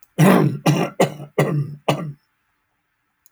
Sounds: Throat clearing